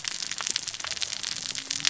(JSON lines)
{"label": "biophony, cascading saw", "recorder": "SoundTrap 600 or HydroMoth"}